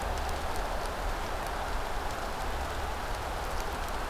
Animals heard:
forest ambience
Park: Marsh-Billings-Rockefeller National Historical Park